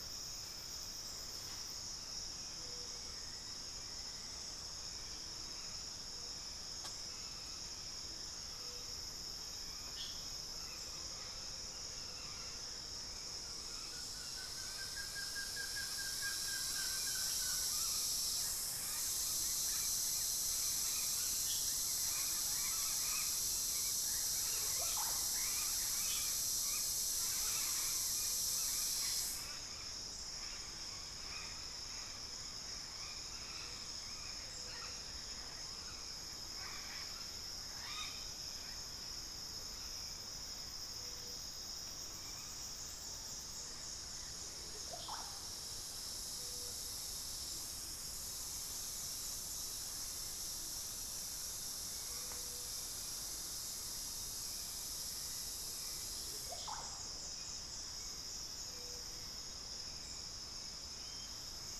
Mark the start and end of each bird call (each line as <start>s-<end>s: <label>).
0.0s-12.2s: Hauxwell's Thrush (Turdus hauxwelli)
10.4s-13.9s: Amazonian Motmot (Momotus momota)
13.4s-17.9s: Buff-throated Woodcreeper (Xiphorhynchus guttatus)
24.4s-25.4s: Russet-backed Oropendola (Psarocolius angustifrons)
44.5s-45.5s: Russet-backed Oropendola (Psarocolius angustifrons)
51.7s-61.8s: Hauxwell's Thrush (Turdus hauxwelli)
56.0s-57.1s: Russet-backed Oropendola (Psarocolius angustifrons)